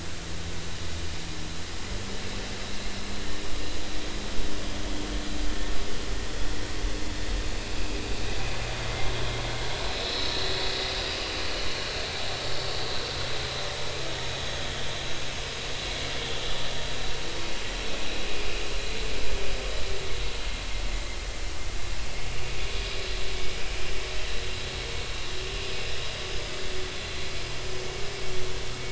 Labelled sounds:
9.9	10.3	vessel noise, 3.8 to 4.2 kHz

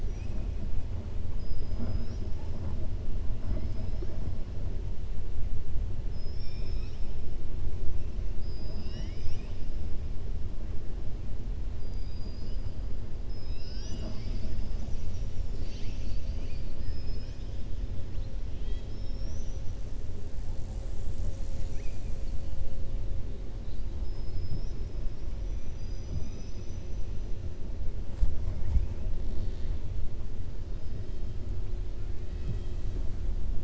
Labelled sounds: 0.1	0.5	killer whale, southern resident, 1.5 to 2.7 kHz
11.9	12.6	killer whale, southern resident, 4.1 to 5.1 kHz
16.9	17.5	killer whale, southern resident, 1.5 to 6.0 kHz
24.0	24.9	killer whale, southern resident, 4.3 to 5.9 kHz
25.6	26.9	killer whale, southern resident, 2.4 to 6.0 kHz

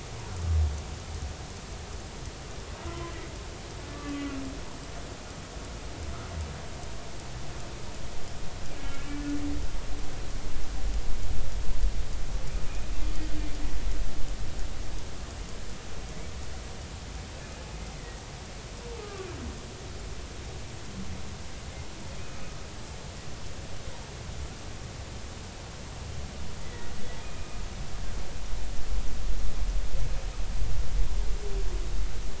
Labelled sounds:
2.9	3.1	humpback whale, 0.96 to 1.1 kHz
3.9	4.4	humpback whale, 1.1 to 2.9 kHz
18.0	19.3	humpback whale, 1.1 to 2.1 kHz
26.6	27.6	humpback whale, 1.8 to 2.5 kHz

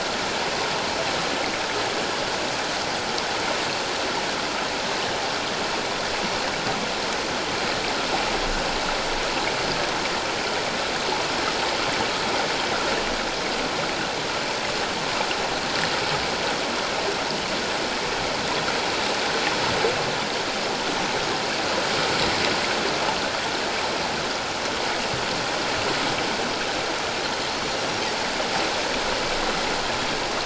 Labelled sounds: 27.7	28.0	Pacific white-sided dolphin, 5.5 to 5.7 kHz

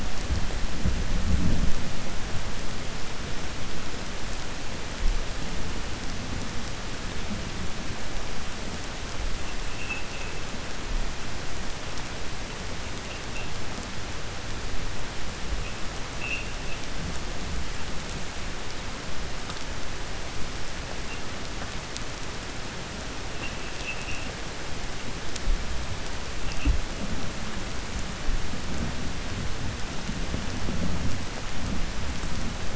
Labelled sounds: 23.7	24.3	vessel noise, 2.5 to 3.8 kHz

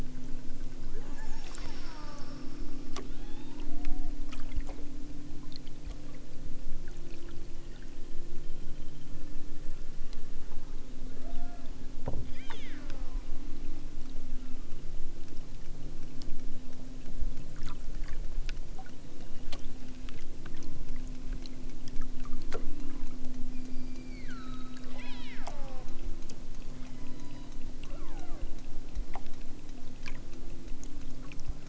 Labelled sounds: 1.1	2.6	killer whale, southern Alaska resident, 0.55 to 7.8 kHz
3.1	4.2	killer whale, southern Alaska resident, 0.46 to 5.2 kHz
11.1	11.7	killer whale, southern Alaska resident, 0.60 to 2.5 kHz
12.2	12.8	killer whale, southern Alaska resident, 0.69 to 5.7 kHz
14.2	14.7	killer whale, southern Alaska resident, 1.1 to 3.2 kHz
19.1	19.7	killer whale, southern Alaska resident, 2.2 to 6.1 kHz
23.4	26.0	killer whale, southern Alaska resident, 0.32 to 6.0 kHz
26.7	28.6	killer whale, southern Alaska resident, 0.50 to 5.9 kHz

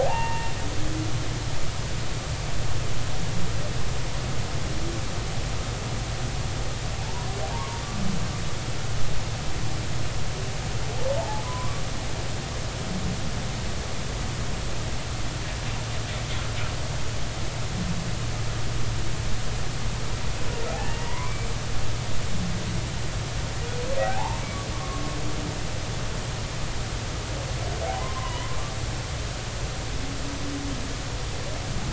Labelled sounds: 0.0	0.5	humpback whale, 0.80 to 2.8 kHz
7.0	7.8	humpback whale, 0.83 to 1.2 kHz
11.1	11.7	humpback whale, 0.80 to 1.1 kHz
20.8	21.5	humpback whale, 0.90 to 2.4 kHz
24.0	25.0	humpback whale, 0.80 to 1.2 kHz
27.9	28.6	humpback whale, 0.90 to 3.1 kHz

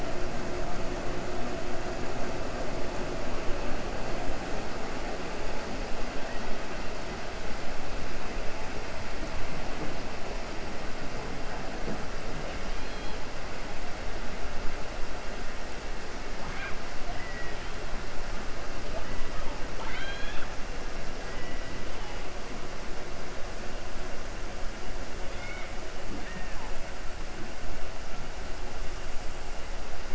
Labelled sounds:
12.7	13.2	killer whale, 2.4 to 4.3 kHz
17.1	17.7	killer whale, 1.9 to 3.0 kHz
19.7	20.5	killer whale, 0.88 to 4.4 kHz
25.2	25.7	killer whale, 1.4 to 4.5 kHz

